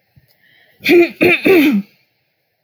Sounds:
Throat clearing